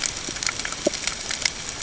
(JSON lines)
{"label": "ambient", "recorder": "HydroMoth"}